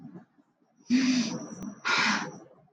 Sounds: Sigh